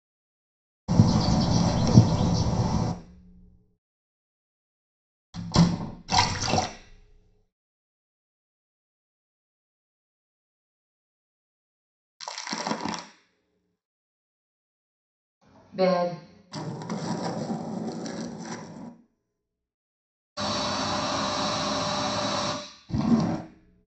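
First a bird can be heard. Then a wooden door closes. Afterwards, splashing is audible. Later, crackling can be heard. Following that, someone says "bed". Then you can hear a skateboard. Afterwards, an aircraft engine is audible. Finally, a wooden drawer opens.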